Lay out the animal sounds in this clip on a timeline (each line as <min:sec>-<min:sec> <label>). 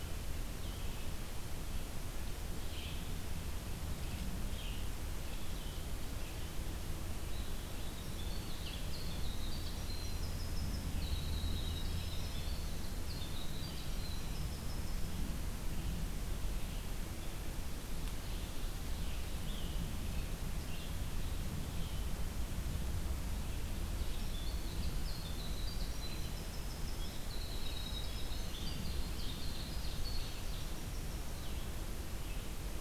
0:00.5-0:32.8 Red-eyed Vireo (Vireo olivaceus)
0:07.2-0:15.6 Winter Wren (Troglodytes hiemalis)
0:24.1-0:31.3 Winter Wren (Troglodytes hiemalis)